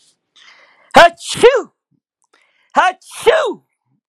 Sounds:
Sneeze